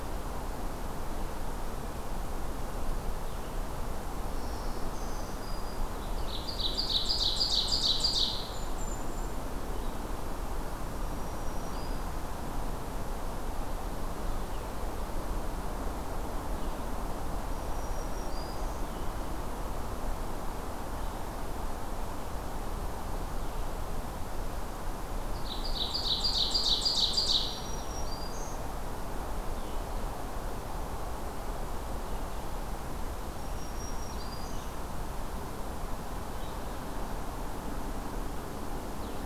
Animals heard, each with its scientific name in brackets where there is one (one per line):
Red-eyed Vireo (Vireo olivaceus)
Golden-crowned Kinglet (Regulus satrapa)
Ovenbird (Seiurus aurocapilla)
Black-throated Green Warbler (Setophaga virens)